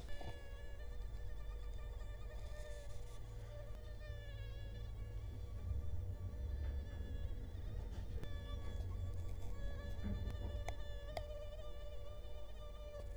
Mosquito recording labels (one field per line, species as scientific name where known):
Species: Culex quinquefasciatus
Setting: cup